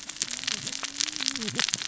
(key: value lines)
label: biophony, cascading saw
recorder: SoundTrap 600 or HydroMoth